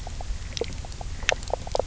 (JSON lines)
{"label": "biophony, knock croak", "recorder": "SoundTrap 300"}